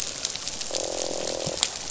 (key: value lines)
label: biophony, croak
recorder: SoundTrap 500